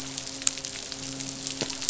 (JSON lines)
{"label": "biophony, midshipman", "recorder": "SoundTrap 500"}